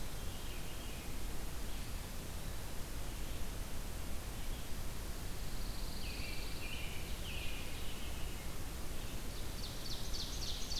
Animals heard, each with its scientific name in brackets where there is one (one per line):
Red-eyed Vireo (Vireo olivaceus)
Veery (Catharus fuscescens)
American Robin (Turdus migratorius)
Pine Warbler (Setophaga pinus)
Ovenbird (Seiurus aurocapilla)